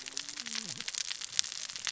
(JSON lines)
{"label": "biophony, cascading saw", "recorder": "SoundTrap 600 or HydroMoth"}